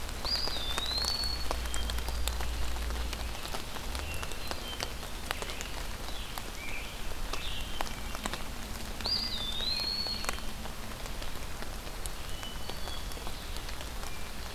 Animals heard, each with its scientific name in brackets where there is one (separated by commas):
Eastern Wood-Pewee (Contopus virens), Hermit Thrush (Catharus guttatus), Scarlet Tanager (Piranga olivacea)